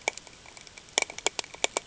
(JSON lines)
{"label": "ambient", "recorder": "HydroMoth"}